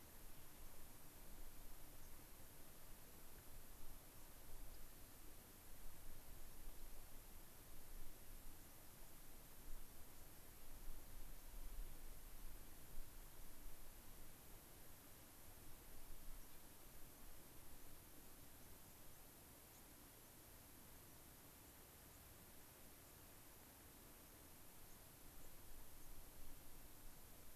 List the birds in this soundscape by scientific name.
Zonotrichia leucophrys, Setophaga coronata